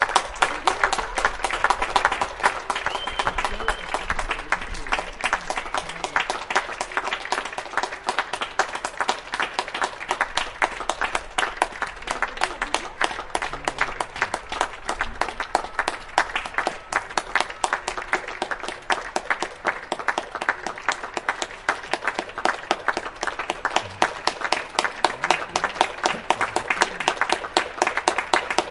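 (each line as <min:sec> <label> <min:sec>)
0:00.0 People applauding and clapping. 0:28.7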